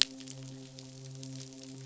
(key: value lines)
label: biophony, midshipman
recorder: SoundTrap 500